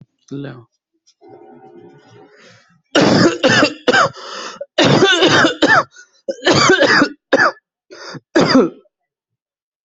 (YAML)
expert_labels:
- quality: good
  cough_type: wet
  dyspnea: false
  wheezing: false
  stridor: false
  choking: false
  congestion: false
  nothing: false
  diagnosis: lower respiratory tract infection
  severity: unknown
age: 32
gender: male
respiratory_condition: false
fever_muscle_pain: false
status: symptomatic